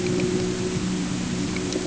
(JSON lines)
{"label": "anthrophony, boat engine", "recorder": "HydroMoth"}